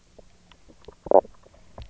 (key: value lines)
label: biophony, knock croak
recorder: SoundTrap 300